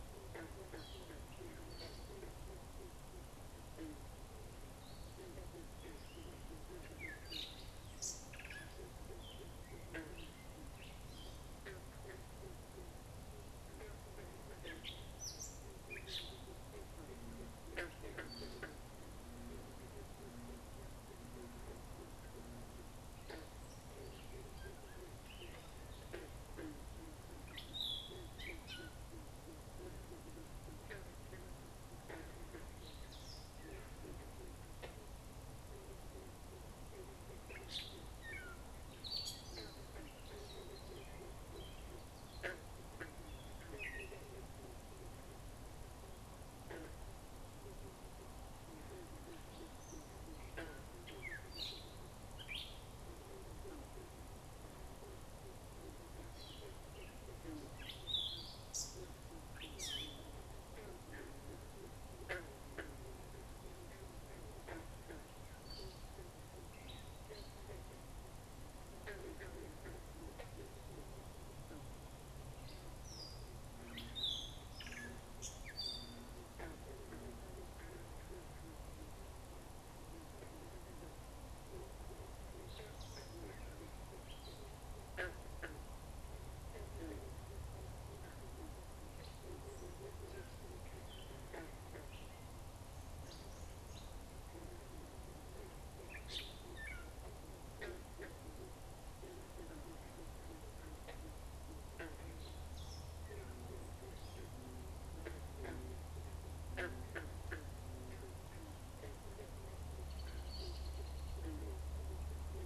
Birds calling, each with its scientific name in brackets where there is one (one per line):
American Robin (Turdus migratorius)
Gray Catbird (Dumetella carolinensis)